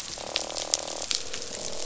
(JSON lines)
{"label": "biophony, croak", "recorder": "SoundTrap 500"}